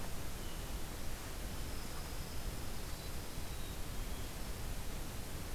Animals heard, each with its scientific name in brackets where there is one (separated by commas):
Black-capped Chickadee (Poecile atricapillus), Pine Warbler (Setophaga pinus)